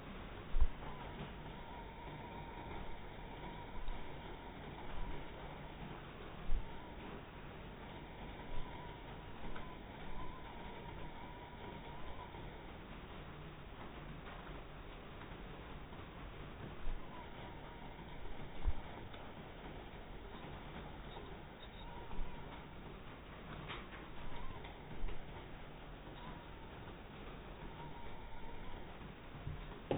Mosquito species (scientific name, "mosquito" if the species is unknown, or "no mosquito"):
mosquito